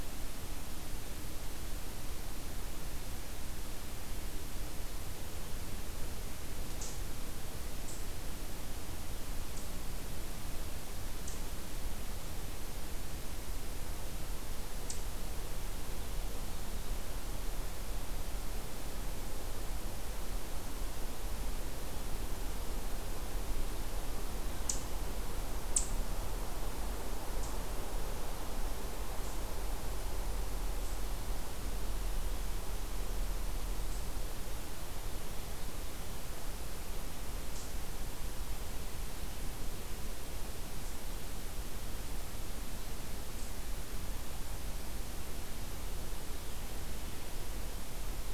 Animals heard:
forest ambience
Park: Acadia National Park